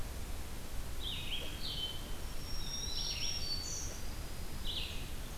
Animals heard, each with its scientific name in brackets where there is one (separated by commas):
Black-throated Green Warbler (Setophaga virens), Red-eyed Vireo (Vireo olivaceus)